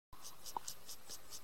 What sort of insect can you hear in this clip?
orthopteran